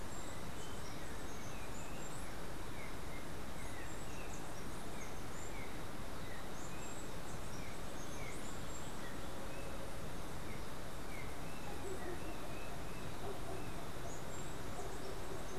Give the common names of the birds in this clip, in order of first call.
Steely-vented Hummingbird, Yellow-backed Oriole